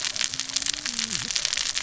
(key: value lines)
label: biophony, cascading saw
recorder: SoundTrap 600 or HydroMoth